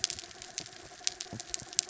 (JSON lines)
{"label": "anthrophony, mechanical", "recorder": "SoundTrap 300"}